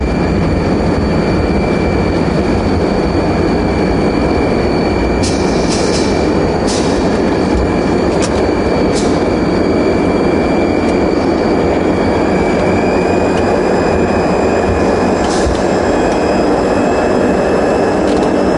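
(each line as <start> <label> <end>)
0.0 An aircraft approaches the ground. 18.6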